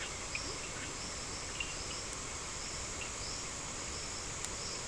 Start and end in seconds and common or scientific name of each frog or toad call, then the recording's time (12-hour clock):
0.0	1.2	Scinax perereca
0.2	0.9	Leptodactylus latrans
1.4	3.4	Cochran's lime tree frog
6:45pm